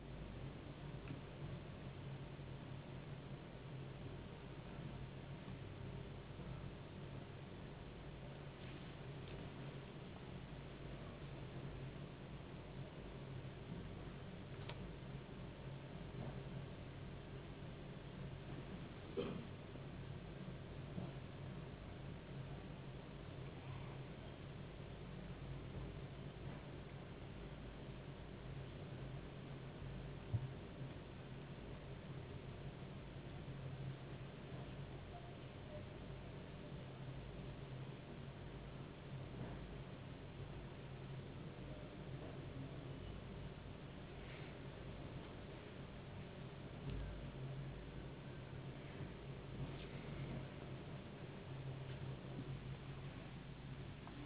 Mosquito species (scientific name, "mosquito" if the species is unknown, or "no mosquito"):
no mosquito